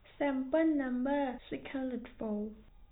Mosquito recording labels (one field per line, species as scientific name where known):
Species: no mosquito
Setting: cup